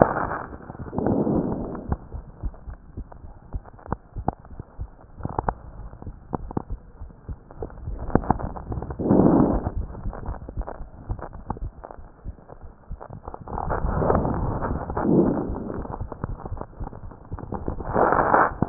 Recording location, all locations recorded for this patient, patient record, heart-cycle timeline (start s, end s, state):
pulmonary valve (PV)
pulmonary valve (PV)
#Age: Child
#Sex: Female
#Height: 139.0 cm
#Weight: 25.2 kg
#Pregnancy status: False
#Murmur: Unknown
#Murmur locations: nan
#Most audible location: nan
#Systolic murmur timing: nan
#Systolic murmur shape: nan
#Systolic murmur grading: nan
#Systolic murmur pitch: nan
#Systolic murmur quality: nan
#Diastolic murmur timing: nan
#Diastolic murmur shape: nan
#Diastolic murmur grading: nan
#Diastolic murmur pitch: nan
#Diastolic murmur quality: nan
#Outcome: Normal
#Campaign: 2014 screening campaign
0.00	2.06	unannotated
2.06	2.14	diastole
2.14	2.24	S1
2.24	2.41	systole
2.41	2.51	S2
2.51	2.68	diastole
2.68	2.76	S1
2.76	2.96	systole
2.96	3.06	S2
3.06	3.22	diastole
3.22	3.32	S1
3.32	3.52	systole
3.52	3.63	S2
3.63	3.87	diastole
3.87	3.96	S1
3.96	4.18	systole
4.18	4.27	S2
4.27	4.51	diastole
4.51	4.60	S1
4.60	4.80	systole
4.80	4.88	S2
4.88	5.18	diastole
5.18	18.69	unannotated